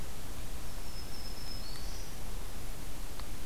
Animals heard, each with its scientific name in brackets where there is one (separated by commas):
Black-throated Green Warbler (Setophaga virens)